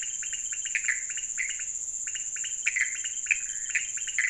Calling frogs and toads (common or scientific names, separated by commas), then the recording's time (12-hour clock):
pointedbelly frog, Pithecopus azureus
2:00am